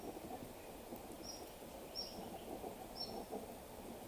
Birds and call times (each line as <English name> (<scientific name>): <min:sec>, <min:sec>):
Cinnamon-chested Bee-eater (Merops oreobates): 0:01.8